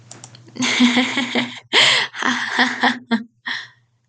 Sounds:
Laughter